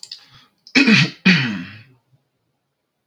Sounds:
Throat clearing